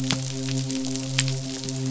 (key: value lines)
label: biophony, midshipman
recorder: SoundTrap 500